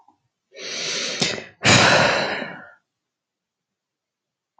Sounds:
Sigh